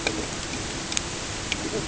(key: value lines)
label: ambient
recorder: HydroMoth